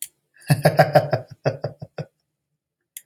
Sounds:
Laughter